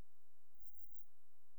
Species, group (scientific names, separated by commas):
Ephippigerida areolaria, Orthoptera